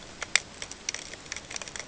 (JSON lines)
{"label": "ambient", "recorder": "HydroMoth"}